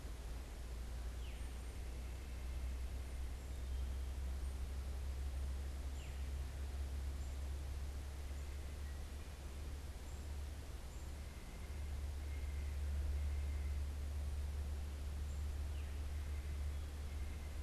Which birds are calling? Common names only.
Veery, White-breasted Nuthatch, Black-capped Chickadee